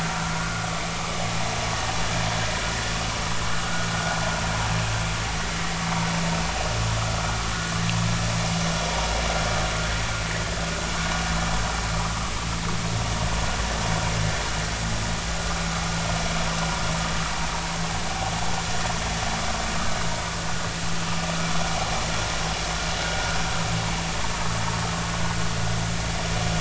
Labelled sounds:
3.6	3.9	vessel noise, 1.3 to 1.5 kHz

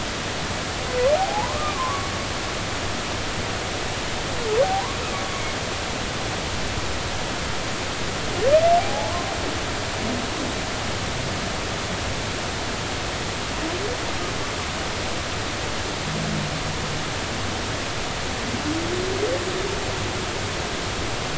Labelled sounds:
1.2	2.1	humpback whale, 0.80 to 1.3 kHz
8.8	9.1	humpback whale, 0.80 to 0.90 kHz

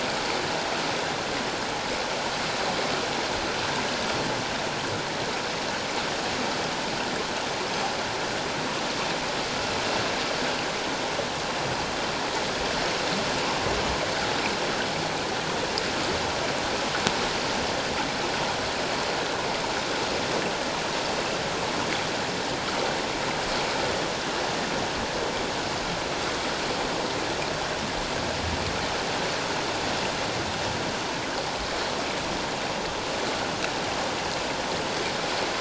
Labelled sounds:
19.2	19.5	water noise, 3.8 to 4.0 kHz

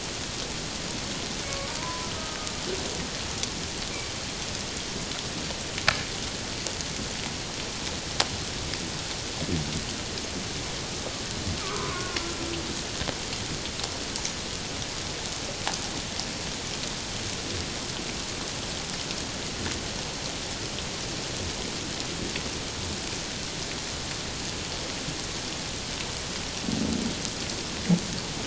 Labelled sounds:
1.5	2.4	humpback whale, 0.88 to 1.3 kHz
11.6	12.2	humpback whale, 0.97 to 1.5 kHz

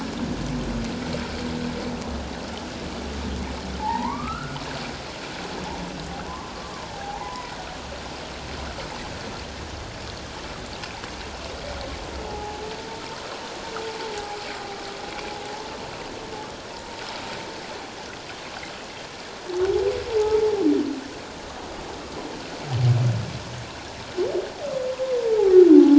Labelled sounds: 3.8	4.6	humpback whale, 0.78 to 2.4 kHz
6.2	6.5	humpback whale, 0.91 to 1.2 kHz
6.9	7.6	humpback whale, 0.78 to 2.1 kHz
12.2	12.6	humpback whale, 0.78 to 0.91 kHz
14.1	14.4	humpback whale, 0.78 to 0.88 kHz
16.7	17.0	humpback whale, 0.88 to 1.0 kHz

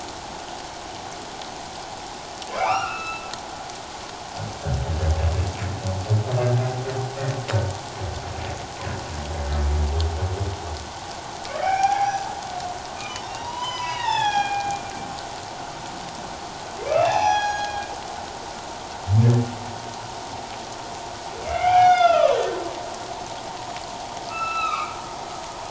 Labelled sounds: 2.5	3.3	humpback whale, 0.78 to 4.0 kHz
11.6	12.2	humpback whale, 0.78 to 2.5 kHz
13.0	14.8	humpback whale, 0.78 to 5.9 kHz
16.8	17.9	humpback whale, 0.78 to 6.1 kHz
21.4	22.6	humpback whale, 0.78 to 5.2 kHz
24.3	24.9	humpback whale, 1.1 to 4.1 kHz

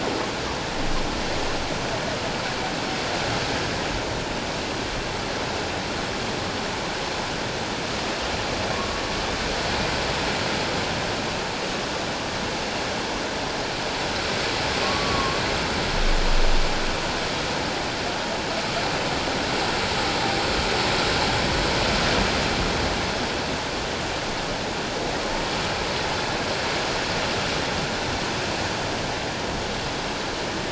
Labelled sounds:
14.8	15.4	humpback whale, 1.0 to 1.2 kHz

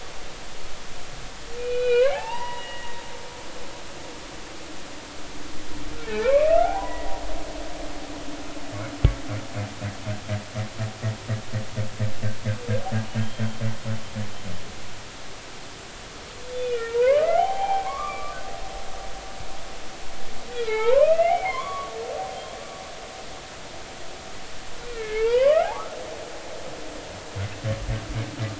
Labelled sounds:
1.6	2.9	humpback whale, 0.80 to 3.5 kHz
6.1	7.1	humpback whale, 0.80 to 2.8 kHz
7.8	8.1	humpback whale, 1.9 to 2.1 kHz
13.2	13.4	humpback whale, 3.1 to 3.2 kHz
16.5	17.9	humpback whale, 0.80 to 3.6 kHz
18.8	19.4	humpback whale, 0.96 to 1.3 kHz
20.5	21.9	humpback whale, 0.80 to 3.5 kHz
22.3	22.6	humpback whale, 3.1 to 3.4 kHz
24.9	26.0	humpback whale, 0.80 to 3.2 kHz

